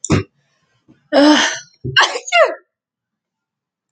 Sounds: Sneeze